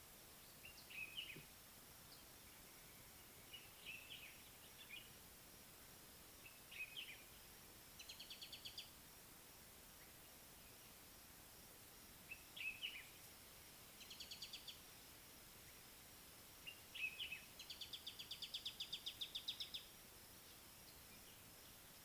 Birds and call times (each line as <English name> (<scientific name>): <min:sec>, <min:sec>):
Common Bulbul (Pycnonotus barbatus): 0:01.0, 0:12.5, 0:16.9
Mariqua Sunbird (Cinnyris mariquensis): 0:08.4, 0:18.7